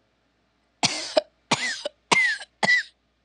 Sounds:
Cough